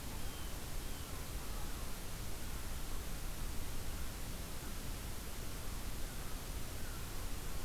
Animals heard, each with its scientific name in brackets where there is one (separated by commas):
American Herring Gull (Larus smithsonianus)